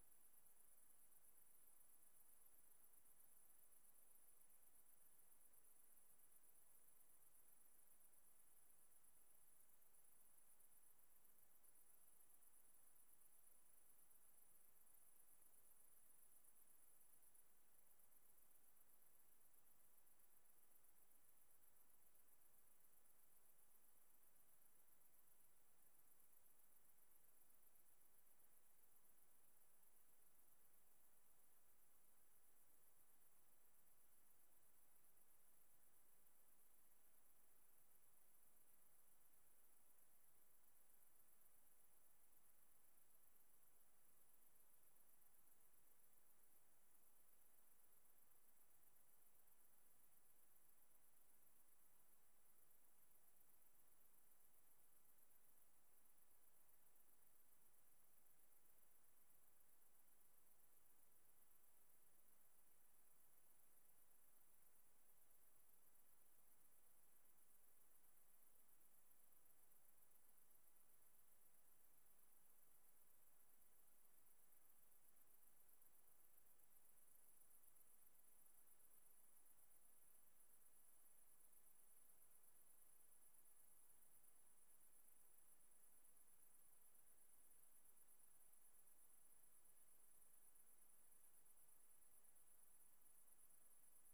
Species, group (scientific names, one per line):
Tettigonia viridissima
Orthoptera